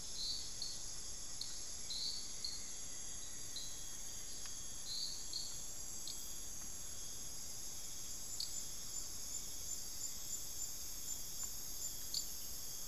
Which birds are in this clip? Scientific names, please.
Formicarius rufifrons, Turdus hauxwelli, Campylorhynchus turdinus